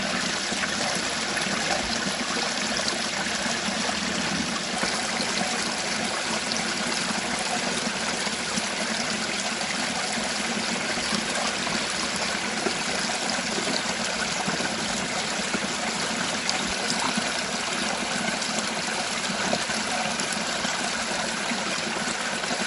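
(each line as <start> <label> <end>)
0.0 Continuous babbling of water flowing in a stream. 22.7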